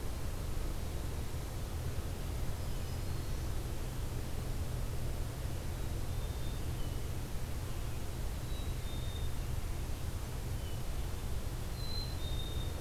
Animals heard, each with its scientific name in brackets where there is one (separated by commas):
Black-throated Green Warbler (Setophaga virens), Black-capped Chickadee (Poecile atricapillus)